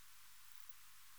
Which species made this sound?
Poecilimon gracilis